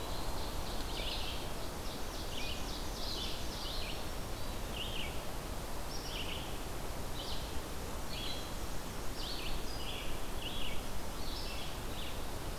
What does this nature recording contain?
Ovenbird, Red-eyed Vireo, Black-and-white Warbler